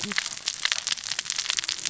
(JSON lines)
{"label": "biophony, cascading saw", "recorder": "SoundTrap 600 or HydroMoth"}